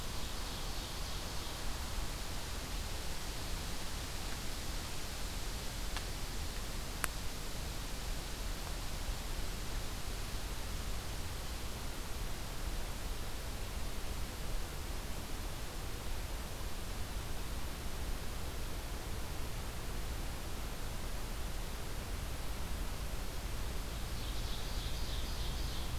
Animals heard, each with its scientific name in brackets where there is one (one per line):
Ovenbird (Seiurus aurocapilla)